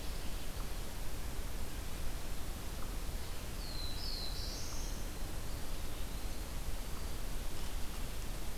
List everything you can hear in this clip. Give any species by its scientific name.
Setophaga caerulescens